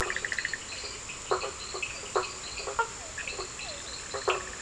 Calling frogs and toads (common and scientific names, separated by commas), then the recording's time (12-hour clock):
Bischoff's tree frog (Boana bischoffi), blacksmith tree frog (Boana faber), fine-lined tree frog (Boana leptolineata), Cochran's lime tree frog (Sphaenorhynchus surdus), Physalaemus cuvieri
11:15pm